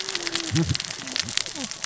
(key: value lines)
label: biophony, cascading saw
recorder: SoundTrap 600 or HydroMoth